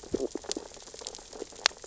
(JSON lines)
{"label": "biophony, stridulation", "recorder": "SoundTrap 600 or HydroMoth"}
{"label": "biophony, sea urchins (Echinidae)", "recorder": "SoundTrap 600 or HydroMoth"}